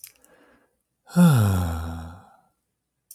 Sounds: Sigh